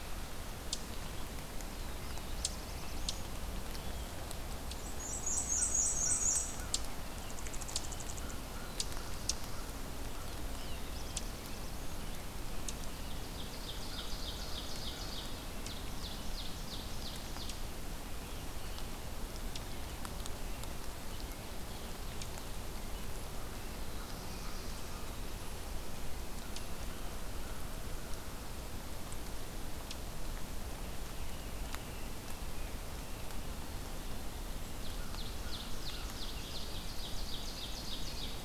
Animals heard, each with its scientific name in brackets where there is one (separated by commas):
Black-throated Blue Warbler (Setophaga caerulescens), Ovenbird (Seiurus aurocapilla), unidentified call, Black-and-white Warbler (Mniotilta varia), American Crow (Corvus brachyrhynchos)